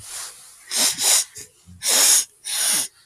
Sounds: Sniff